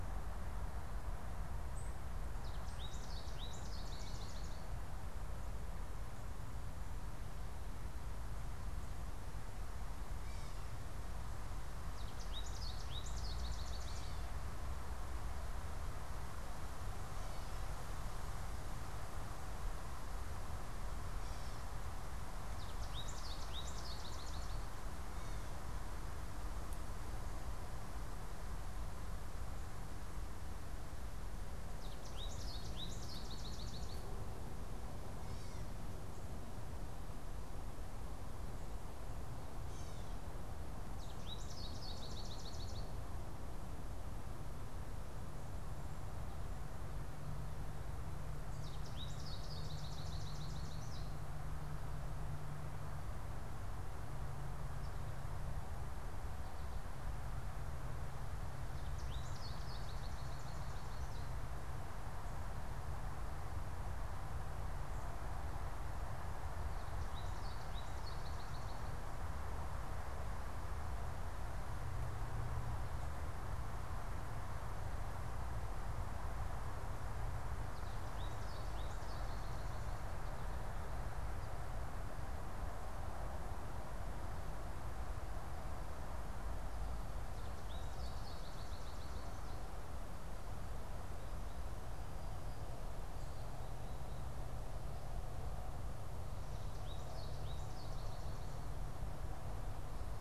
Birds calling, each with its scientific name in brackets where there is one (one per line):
Gray Catbird (Dumetella carolinensis)
unidentified bird
American Goldfinch (Spinus tristis)